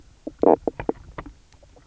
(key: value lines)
label: biophony, knock croak
recorder: SoundTrap 300